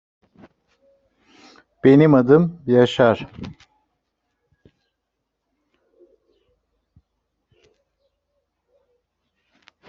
{"expert_labels": [{"quality": "no cough present", "cough_type": "unknown", "dyspnea": false, "wheezing": false, "stridor": false, "choking": false, "congestion": false, "nothing": true, "diagnosis": "healthy cough", "severity": "pseudocough/healthy cough"}, {"quality": "no cough present", "cough_type": "unknown", "dyspnea": false, "wheezing": false, "stridor": false, "choking": false, "congestion": false, "nothing": true, "diagnosis": "healthy cough", "severity": "unknown"}, {"quality": "no cough present", "dyspnea": false, "wheezing": false, "stridor": false, "choking": false, "congestion": false, "nothing": false}, {"quality": "no cough present", "dyspnea": false, "wheezing": false, "stridor": false, "choking": false, "congestion": false, "nothing": false}], "age": 42, "gender": "other", "respiratory_condition": true, "fever_muscle_pain": true, "status": "COVID-19"}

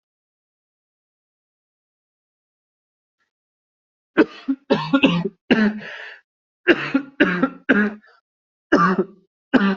{"expert_labels": [{"quality": "good", "cough_type": "wet", "dyspnea": false, "wheezing": false, "stridor": false, "choking": false, "congestion": false, "nothing": true, "diagnosis": "lower respiratory tract infection", "severity": "severe"}], "gender": "female", "respiratory_condition": false, "fever_muscle_pain": false, "status": "COVID-19"}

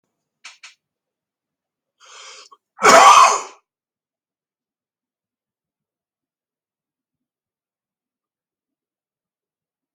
{"expert_labels": [{"quality": "ok", "cough_type": "dry", "dyspnea": false, "wheezing": false, "stridor": false, "choking": false, "congestion": false, "nothing": true, "diagnosis": "healthy cough", "severity": "pseudocough/healthy cough"}], "age": 52, "gender": "male", "respiratory_condition": true, "fever_muscle_pain": false, "status": "symptomatic"}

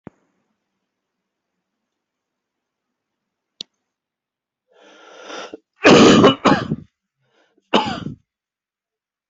{"expert_labels": [{"quality": "ok", "cough_type": "wet", "dyspnea": false, "wheezing": false, "stridor": false, "choking": false, "congestion": false, "nothing": true, "diagnosis": "lower respiratory tract infection", "severity": "mild"}], "age": 46, "gender": "male", "respiratory_condition": false, "fever_muscle_pain": false, "status": "healthy"}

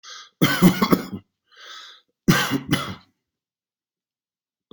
{"expert_labels": [{"quality": "good", "cough_type": "dry", "dyspnea": false, "wheezing": false, "stridor": false, "choking": false, "congestion": false, "nothing": true, "diagnosis": "upper respiratory tract infection", "severity": "mild"}], "age": 42, "gender": "male", "respiratory_condition": false, "fever_muscle_pain": false, "status": "symptomatic"}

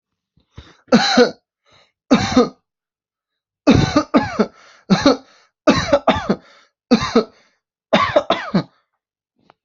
{"expert_labels": [{"quality": "good", "cough_type": "dry", "dyspnea": false, "wheezing": false, "stridor": false, "choking": false, "congestion": false, "nothing": true, "diagnosis": "upper respiratory tract infection", "severity": "severe"}], "age": 25, "gender": "male", "respiratory_condition": false, "fever_muscle_pain": false, "status": "healthy"}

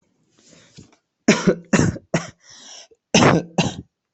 {"expert_labels": [{"quality": "good", "cough_type": "dry", "dyspnea": false, "wheezing": false, "stridor": false, "choking": false, "congestion": false, "nothing": true, "diagnosis": "healthy cough", "severity": "pseudocough/healthy cough"}], "gender": "female", "respiratory_condition": true, "fever_muscle_pain": true, "status": "COVID-19"}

